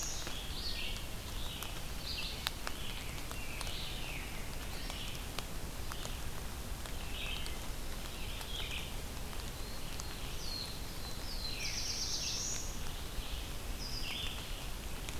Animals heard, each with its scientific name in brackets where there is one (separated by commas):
Red-eyed Vireo (Vireo olivaceus), Black-throated Blue Warbler (Setophaga caerulescens), Wood Thrush (Hylocichla mustelina)